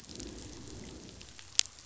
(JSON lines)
{"label": "biophony, growl", "recorder": "SoundTrap 500"}